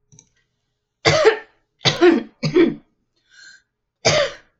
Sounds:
Cough